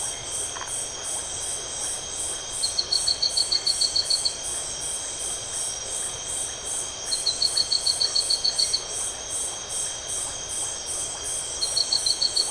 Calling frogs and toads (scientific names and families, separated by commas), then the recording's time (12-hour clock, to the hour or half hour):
Leptodactylus notoaktites (Leptodactylidae), Phyllomedusa distincta (Hylidae)
9:30pm